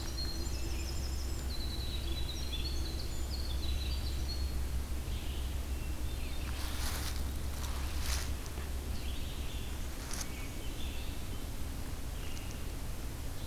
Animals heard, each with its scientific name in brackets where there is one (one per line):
Winter Wren (Troglodytes hiemalis)
Hermit Thrush (Catharus guttatus)
Red-eyed Vireo (Vireo olivaceus)